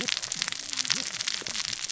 {"label": "biophony, cascading saw", "recorder": "SoundTrap 600 or HydroMoth"}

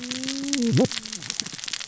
{"label": "biophony, cascading saw", "recorder": "SoundTrap 600 or HydroMoth"}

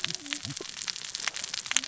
{"label": "biophony, cascading saw", "recorder": "SoundTrap 600 or HydroMoth"}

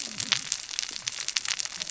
{"label": "biophony, cascading saw", "recorder": "SoundTrap 600 or HydroMoth"}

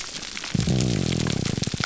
{"label": "biophony, grouper groan", "recorder": "SoundTrap 300"}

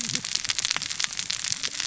{"label": "biophony, cascading saw", "recorder": "SoundTrap 600 or HydroMoth"}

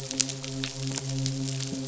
{"label": "biophony, midshipman", "recorder": "SoundTrap 500"}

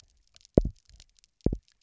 {"label": "biophony, double pulse", "recorder": "SoundTrap 300"}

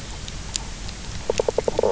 {"label": "biophony, knock croak", "recorder": "SoundTrap 300"}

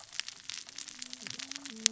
{"label": "biophony, cascading saw", "recorder": "SoundTrap 600 or HydroMoth"}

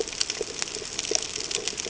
{"label": "ambient", "recorder": "HydroMoth"}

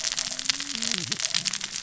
{"label": "biophony, cascading saw", "recorder": "SoundTrap 600 or HydroMoth"}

